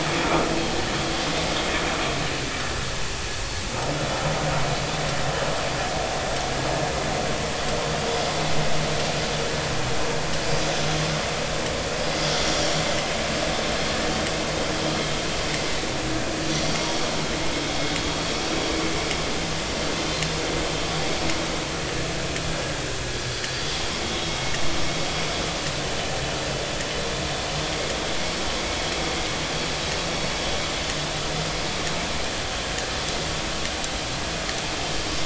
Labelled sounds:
16.8	17.1	vessel noise, 3.2 to 3.4 kHz

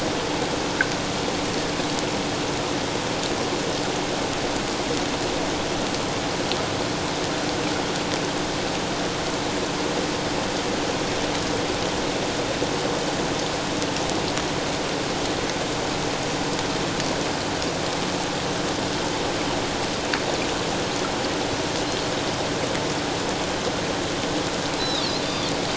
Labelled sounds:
24.8	25.5	Pacific white-sided dolphin, 3.2 to 4.1 kHz

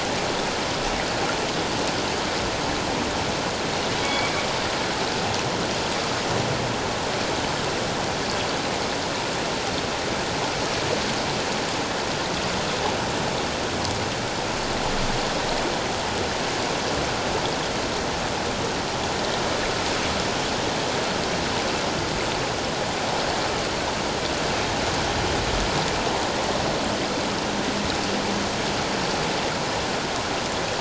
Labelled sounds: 4.0	4.3	humpback whale, 2.2 to 2.3 kHz

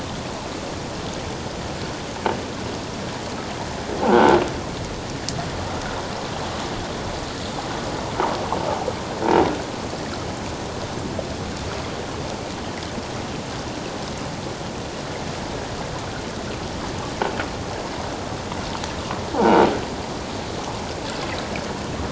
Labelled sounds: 4.0	4.4	croaking sound likely from a nearby submerged object, 0.78 to 1.6 kHz
19.3	19.6	croaking sound likely from a nearby submerged object, 0.78 to 1.0 kHz

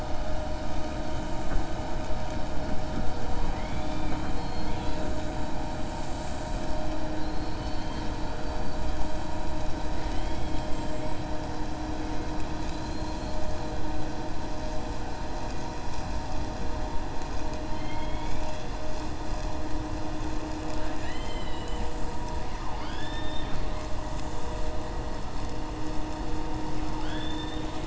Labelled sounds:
17.7	18.7	killer whale, 2.1 to 4.2 kHz
20.7	21.9	killer whale, 1.4 to 4.4 kHz

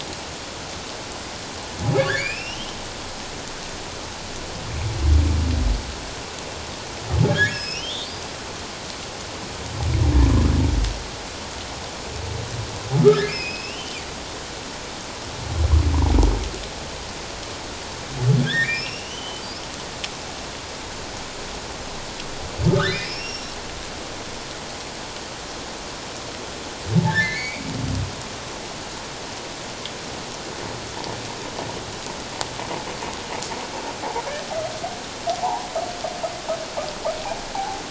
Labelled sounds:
2.0	2.8	humpback whale, 1.4 to 5.6 kHz
7.3	8.0	humpback whale, 1.6 to 5.9 kHz
13.0	14.0	humpback whale, 1.2 to 5.3 kHz
18.4	19.4	humpback whale, 1.5 to 5.6 kHz
22.7	23.5	humpback whale, 1.1 to 5.8 kHz
27.1	27.6	humpback whale, 1.5 to 2.4 kHz
35.4	35.6	humpback whale, 0.78 to 1.0 kHz
37.5	37.8	humpback whale, 0.78 to 0.94 kHz

